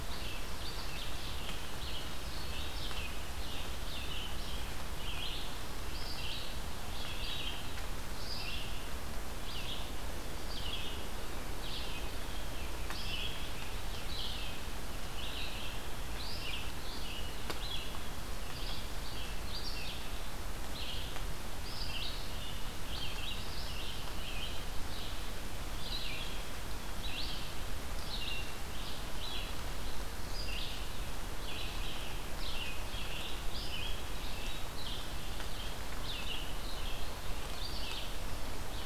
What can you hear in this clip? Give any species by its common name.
Red-eyed Vireo